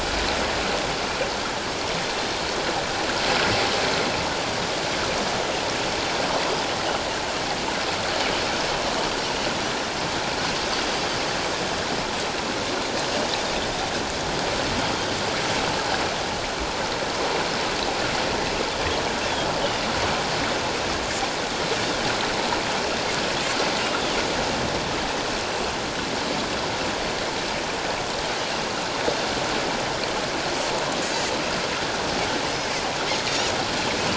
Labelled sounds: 19.6	19.9	Pacific white-sided dolphin, 2.7 to 3.1 kHz
31.0	31.2	Pacific white-sided dolphin, 6.2 to 6.8 kHz
32.4	32.8	Pacific white-sided dolphin, 1.9 to 2.2 kHz

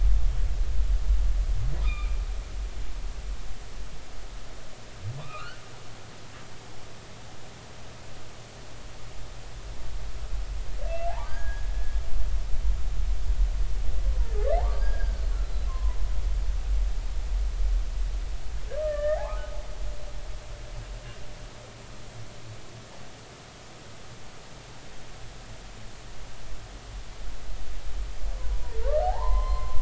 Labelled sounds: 1.8	2.2	humpback whale, 1.1 to 3.7 kHz
5.2	5.6	humpback whale, 0.96 to 3.2 kHz
10.9	11.7	humpback whale, 0.80 to 2.8 kHz
14.7	16.0	humpback whale, 0.93 to 5.0 kHz
18.8	19.5	humpback whale, 0.80 to 2.0 kHz
28.4	29.7	humpback whale, 0.80 to 3.2 kHz

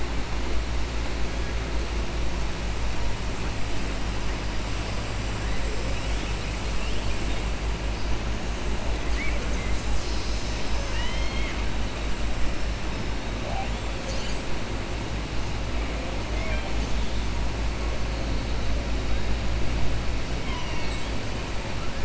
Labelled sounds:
9.0	9.7	killer whale, southern resident, 0.50 to 2.7 kHz
16.3	16.7	killer whale, southern resident, 0.60 to 3.2 kHz

